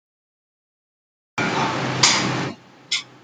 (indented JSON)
{
  "expert_labels": [
    {
      "quality": "no cough present",
      "cough_type": "unknown",
      "dyspnea": false,
      "wheezing": false,
      "stridor": false,
      "choking": false,
      "congestion": false,
      "nothing": true,
      "diagnosis": "healthy cough",
      "severity": "unknown"
    }
  ],
  "gender": "female",
  "respiratory_condition": false,
  "fever_muscle_pain": false,
  "status": "COVID-19"
}